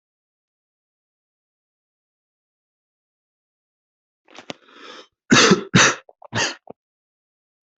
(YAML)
expert_labels:
- quality: good
  cough_type: dry
  dyspnea: false
  wheezing: false
  stridor: false
  choking: false
  congestion: false
  nothing: true
  diagnosis: healthy cough
  severity: pseudocough/healthy cough
age: 20
gender: male
respiratory_condition: true
fever_muscle_pain: true
status: COVID-19